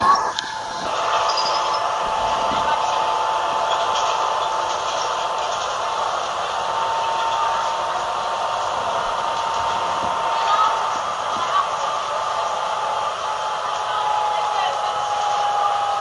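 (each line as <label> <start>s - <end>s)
The hum of a bus engine mingles with people speaking and footsteps. 0.0s - 16.0s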